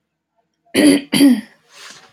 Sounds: Throat clearing